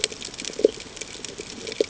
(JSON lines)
{"label": "ambient", "recorder": "HydroMoth"}